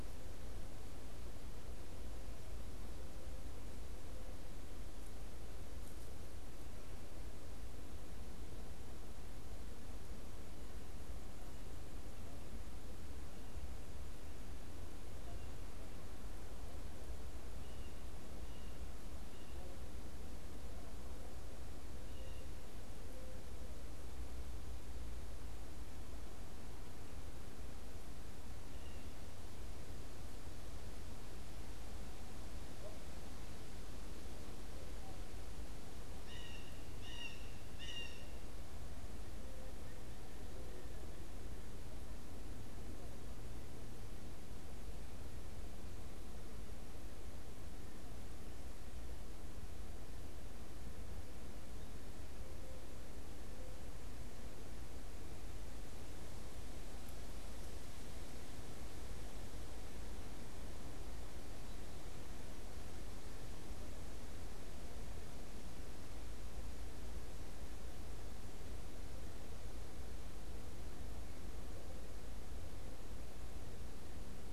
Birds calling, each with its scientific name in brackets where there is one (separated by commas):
Blue Jay (Cyanocitta cristata)